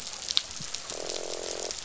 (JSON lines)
{"label": "biophony, croak", "recorder": "SoundTrap 500"}